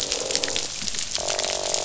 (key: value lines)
label: biophony, croak
recorder: SoundTrap 500